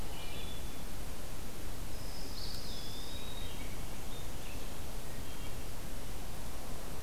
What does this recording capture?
Wood Thrush, Dark-eyed Junco, Eastern Wood-Pewee, Red-eyed Vireo